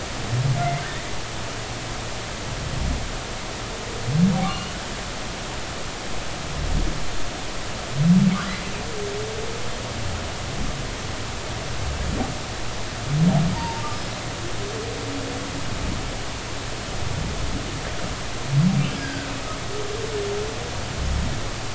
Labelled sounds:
4.5	4.8	humpback whale, 2.7 to 3.0 kHz
13.5	13.8	humpback whale, 0.86 to 0.99 kHz
19.0	19.3	humpback whale, 1.4 to 1.7 kHz

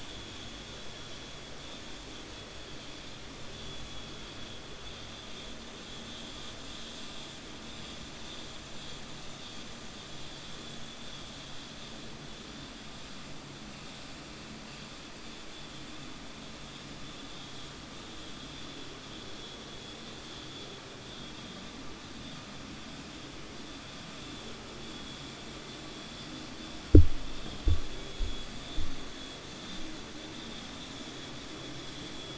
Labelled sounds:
20.2	20.7	vessel noise, 3.1 to 4.4 kHz

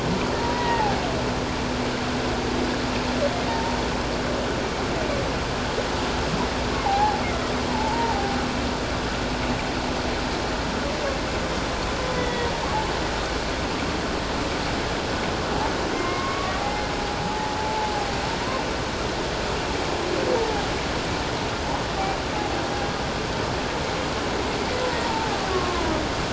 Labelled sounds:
0.4	0.9	humpback whale, 0.78 to 2.0 kHz
3.5	3.8	humpback whale, 0.88 to 0.97 kHz
6.8	8.4	humpback whale, 0.78 to 1.0 kHz
12.1	12.5	humpback whale, 1.8 to 3.5 kHz
15.9	17.9	humpback whale, 0.78 to 2.2 kHz
25.0	25.9	humpback whale, 0.78 to 1.2 kHz

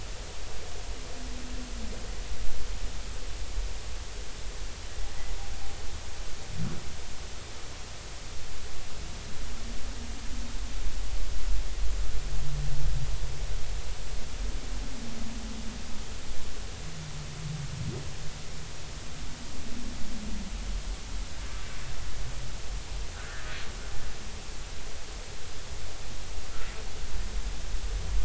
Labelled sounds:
23.2	23.5	humpback whale, 1.3 to 1.9 kHz

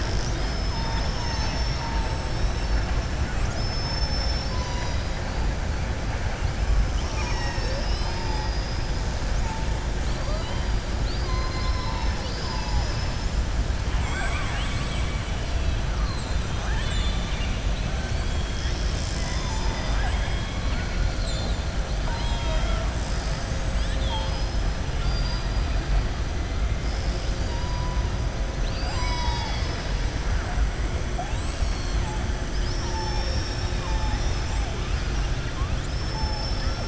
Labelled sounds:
10.0	10.7	killer whale, southern resident, 2.0 to 4.8 kHz
13.9	15.3	killer whale, southern resident, 0.72 to 4.4 kHz
15.9	17.6	killer whale, southern resident, 0.89 to 4.5 kHz
20.0	20.7	killer whale, southern resident, 7.7 to 8.0 kHz
21.0	21.6	killer whale, southern resident, 3.5 to 4.7 kHz
22.0	22.9	killer whale, southern resident, 0.62 to 4.5 kHz
24.9	25.6	killer whale, southern resident, 3.9 to 5.4 kHz
28.5	30.0	killer whale, southern resident, 0.83 to 7.7 kHz
31.2	32.0	killer whale, southern resident, 3.3 to 4.6 kHz

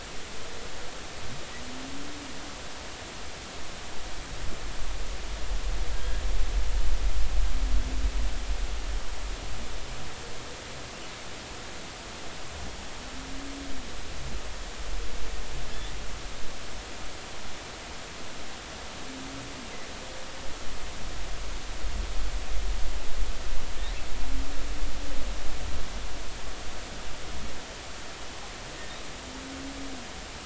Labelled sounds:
5.9	6.2	humpback whale, 1.6 to 1.7 kHz

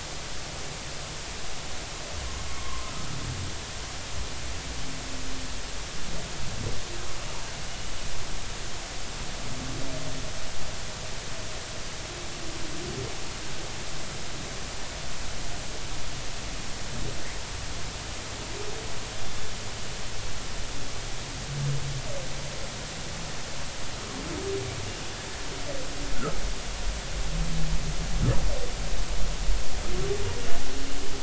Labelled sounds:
2.5	2.9	humpback whale, 0.99 to 1.2 kHz
7.7	7.9	humpback whale, 2.9 to 3.0 kHz
26.2	26.4	humpback whale, 1.2 to 1.5 kHz

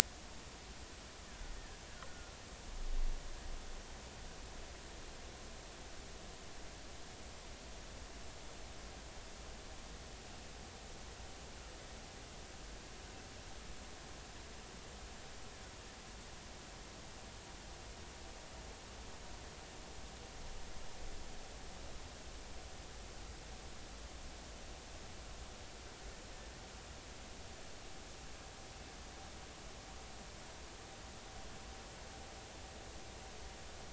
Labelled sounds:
1.3	1.5	killer whale, Bigg's (transient), 1.4 to 1.8 kHz
1.9	2.4	killer whale, Bigg's (transient), 1.2 to 1.6 kHz

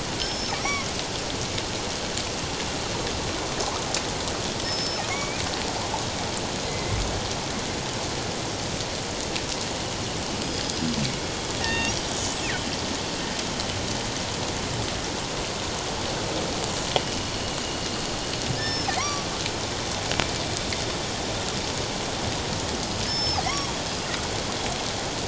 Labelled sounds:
0.2	0.9	killer whale, northern resident, G clan, call N23i, 5.1 to 5.8 kHz
4.6	5.4	killer whale, northern resident, G clan, call N23i, 2.0 to 5.3 kHz
6.7	7.0	killer whale, northern resident, G clan, 2.0 to 2.2 kHz
10.4	10.9	killer whale, northern resident, G clan, 4.8 to 5.1 kHz
11.6	12.7	killer whale, northern resident, G clan, 1.8 to 8.0 kHz
18.5	19.3	killer whale, northern resident, G clan, 0.97 to 5.4 kHz
23.1	23.4	killer whale, northern resident, G clan, 4.8 to 5.3 kHz

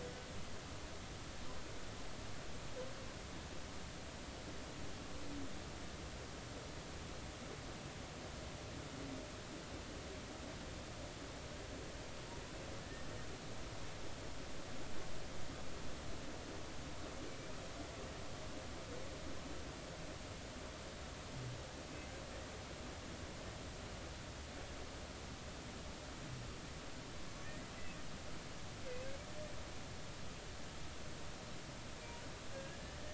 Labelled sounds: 12.8	13.1	humpback whale, 1.7 to 1.9 kHz
32.5	32.8	humpback whale, 1.6 to 1.7 kHz

